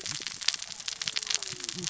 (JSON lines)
{"label": "biophony, cascading saw", "recorder": "SoundTrap 600 or HydroMoth"}